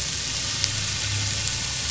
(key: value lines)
label: anthrophony, boat engine
recorder: SoundTrap 500